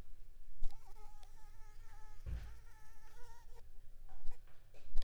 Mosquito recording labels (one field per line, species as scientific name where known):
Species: Anopheles gambiae s.l.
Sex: female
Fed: unfed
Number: one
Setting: cup